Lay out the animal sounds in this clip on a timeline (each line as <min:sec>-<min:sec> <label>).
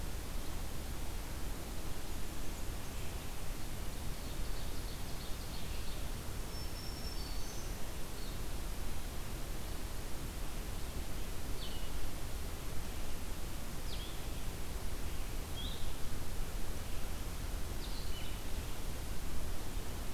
0:04.0-0:06.1 Ovenbird (Seiurus aurocapilla)
0:06.3-0:07.8 Black-throated Green Warbler (Setophaga virens)
0:08.1-0:20.1 Blue-headed Vireo (Vireo solitarius)